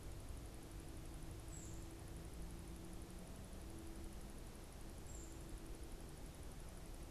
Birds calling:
unidentified bird

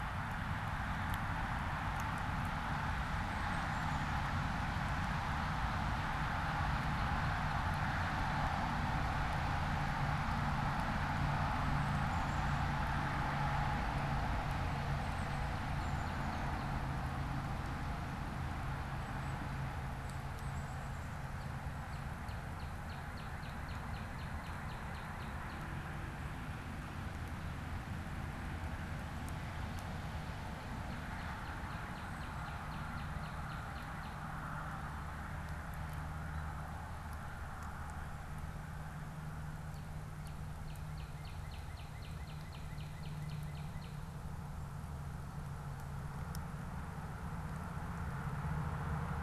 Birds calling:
Northern Cardinal (Cardinalis cardinalis), Black-capped Chickadee (Poecile atricapillus)

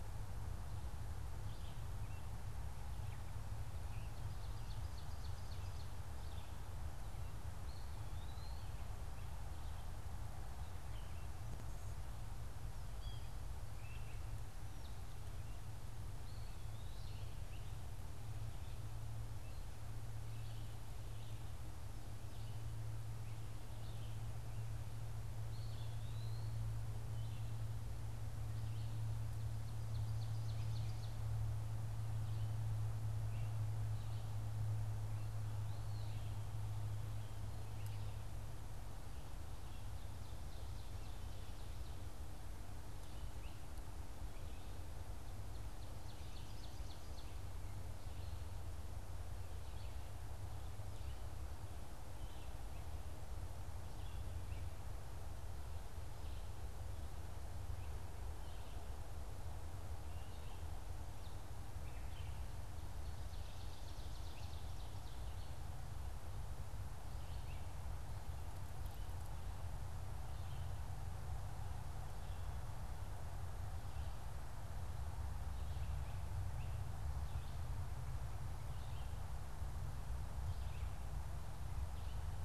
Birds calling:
Ovenbird (Seiurus aurocapilla), Eastern Wood-Pewee (Contopus virens), Red-eyed Vireo (Vireo olivaceus)

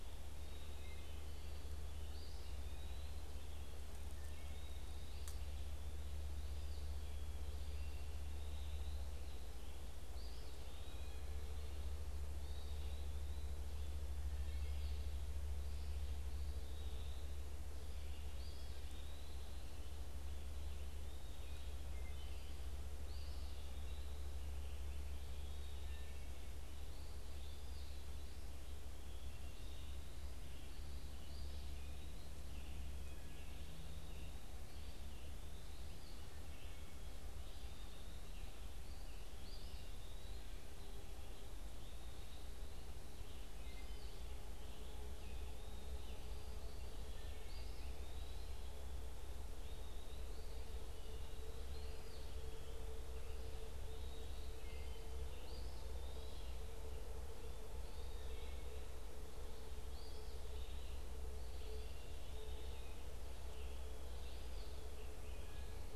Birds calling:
Eastern Wood-Pewee (Contopus virens), American Robin (Turdus migratorius), Wood Thrush (Hylocichla mustelina)

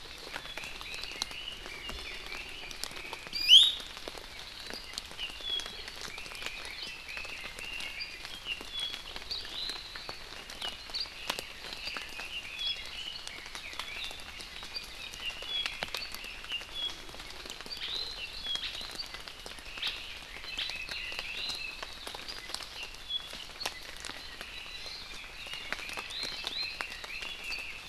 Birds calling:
Apapane (Himatione sanguinea), Red-billed Leiothrix (Leiothrix lutea), Iiwi (Drepanis coccinea)

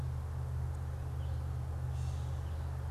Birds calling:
unidentified bird, Gray Catbird (Dumetella carolinensis)

